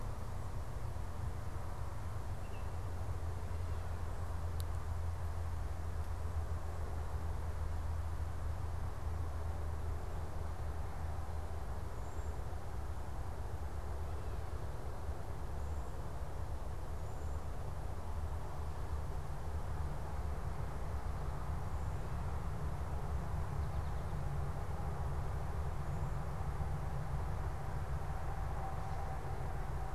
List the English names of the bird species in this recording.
Baltimore Oriole, Cedar Waxwing